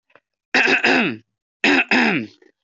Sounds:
Throat clearing